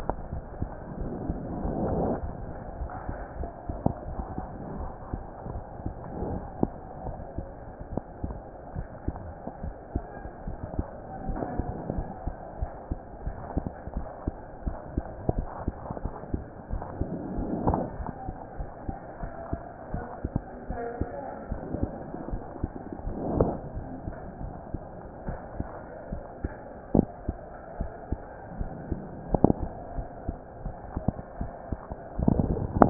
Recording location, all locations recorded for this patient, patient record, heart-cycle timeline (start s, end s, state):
mitral valve (MV)
aortic valve (AV)+pulmonary valve (PV)+tricuspid valve (TV)+mitral valve (MV)
#Age: Child
#Sex: Male
#Height: 143.0 cm
#Weight: 34.2 kg
#Pregnancy status: False
#Murmur: Absent
#Murmur locations: nan
#Most audible location: nan
#Systolic murmur timing: nan
#Systolic murmur shape: nan
#Systolic murmur grading: nan
#Systolic murmur pitch: nan
#Systolic murmur quality: nan
#Diastolic murmur timing: nan
#Diastolic murmur shape: nan
#Diastolic murmur grading: nan
#Diastolic murmur pitch: nan
#Diastolic murmur quality: nan
#Outcome: Normal
#Campaign: 2015 screening campaign
0.00	2.78	unannotated
2.78	2.90	S1
2.90	3.08	systole
3.08	3.18	S2
3.18	3.38	diastole
3.38	3.50	S1
3.50	3.68	systole
3.68	3.80	S2
3.80	4.08	diastole
4.08	4.20	S1
4.20	4.36	systole
4.36	4.48	S2
4.48	4.74	diastole
4.74	4.90	S1
4.90	5.08	systole
5.08	5.22	S2
5.22	5.52	diastole
5.52	5.62	S1
5.62	5.84	systole
5.84	5.94	S2
5.94	6.20	diastole
6.20	6.38	S1
6.38	6.60	systole
6.60	6.70	S2
6.70	7.06	diastole
7.06	7.18	S1
7.18	7.37	systole
7.37	7.48	S2
7.48	7.91	diastole
7.91	8.02	S1
8.02	8.21	systole
8.21	8.31	S2
8.31	8.76	diastole
8.76	8.88	S1
8.88	9.06	systole
9.06	9.16	S2
9.16	9.64	diastole
9.64	9.76	S1
9.76	9.94	systole
9.94	10.04	S2
10.04	10.48	diastole
10.48	10.58	S1
10.58	10.78	systole
10.78	10.86	S2
10.86	11.28	diastole
11.28	11.40	S1
11.40	11.58	systole
11.58	11.68	S2
11.68	11.96	diastole
11.96	12.08	S1
12.08	12.25	systole
12.25	12.34	S2
12.34	12.60	diastole
12.60	12.70	S1
12.70	12.90	systole
12.90	13.00	S2
13.00	13.26	diastole
13.26	13.36	S1
13.36	13.56	systole
13.56	13.66	S2
13.66	13.96	diastole
13.96	14.06	S1
14.06	14.26	systole
14.26	14.34	S2
14.34	14.66	diastole
14.66	14.76	S1
14.76	14.96	systole
14.96	15.06	S2
15.06	15.36	diastole
15.36	15.48	S1
15.48	15.66	systole
15.66	15.76	S2
15.76	16.02	diastole
16.02	16.14	S1
16.14	16.32	systole
16.32	16.42	S2
16.42	16.72	diastole
16.72	16.84	S1
16.84	16.99	systole
16.99	17.09	S2
17.09	17.32	diastole
17.32	17.52	S1
17.52	32.90	unannotated